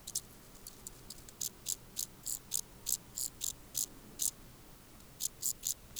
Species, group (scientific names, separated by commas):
Chorthippus brunneus, Orthoptera